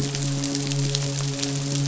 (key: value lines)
label: biophony, midshipman
recorder: SoundTrap 500